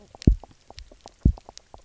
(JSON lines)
{"label": "biophony, knock croak", "recorder": "SoundTrap 300"}
{"label": "biophony, double pulse", "recorder": "SoundTrap 300"}